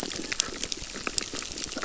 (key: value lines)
label: biophony, crackle
recorder: SoundTrap 600